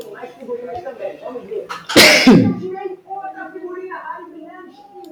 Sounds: Sneeze